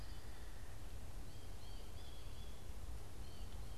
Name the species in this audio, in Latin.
Dryocopus pileatus, Spinus tristis